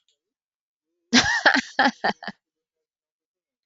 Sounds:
Laughter